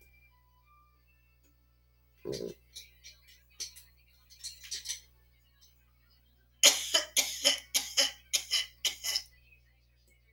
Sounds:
Cough